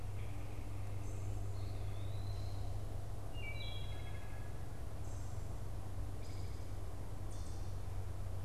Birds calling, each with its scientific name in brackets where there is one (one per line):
Wood Thrush (Hylocichla mustelina)
Eastern Wood-Pewee (Contopus virens)